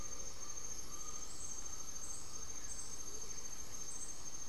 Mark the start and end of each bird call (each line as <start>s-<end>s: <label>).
0.0s-2.1s: Undulated Tinamou (Crypturellus undulatus)
0.0s-4.5s: Blue-gray Saltator (Saltator coerulescens)
0.0s-4.5s: Gray-fronted Dove (Leptotila rufaxilla)